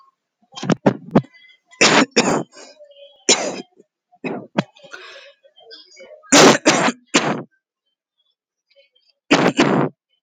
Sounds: Cough